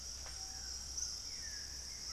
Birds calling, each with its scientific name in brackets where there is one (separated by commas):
Dusky-throated Antshrike (Thamnomanes ardesiacus), White-throated Toucan (Ramphastos tucanus), Buff-throated Woodcreeper (Xiphorhynchus guttatus), Screaming Piha (Lipaugus vociferans)